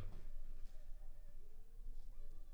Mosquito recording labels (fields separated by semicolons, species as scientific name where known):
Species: Anopheles funestus s.s.; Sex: female; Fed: unfed; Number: one; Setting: cup